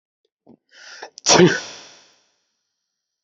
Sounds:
Sneeze